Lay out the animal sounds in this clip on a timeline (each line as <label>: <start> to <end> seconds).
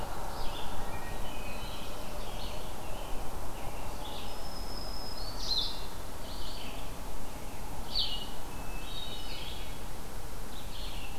Red-eyed Vireo (Vireo olivaceus): 0.0 to 11.2 seconds
Hermit Thrush (Catharus guttatus): 0.8 to 2.1 seconds
Scarlet Tanager (Piranga olivacea): 1.2 to 4.1 seconds
Black-throated Blue Warbler (Setophaga caerulescens): 1.3 to 2.6 seconds
Black-throated Green Warbler (Setophaga virens): 4.1 to 5.7 seconds
Hermit Thrush (Catharus guttatus): 8.5 to 9.6 seconds